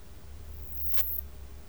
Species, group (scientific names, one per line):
Poecilimon artedentatus
Orthoptera